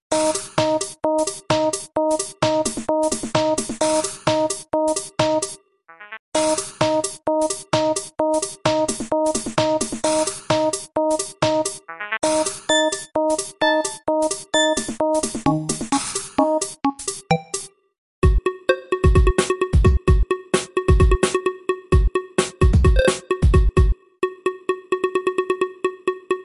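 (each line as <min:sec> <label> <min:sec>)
0:00.0 Rhythmic drums with beeping sounds. 0:05.6
0:06.3 Rhythmic drums with beeping sounds. 0:11.8
0:12.2 Rhythmic drums accompanied by beeping sounds. 0:17.7
0:18.2 A drum with snares is playing. 0:24.1
0:24.2 Snare drum sounds. 0:26.4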